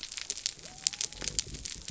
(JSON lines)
{"label": "biophony", "recorder": "SoundTrap 300"}